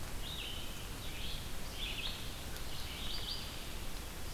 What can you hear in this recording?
Red-eyed Vireo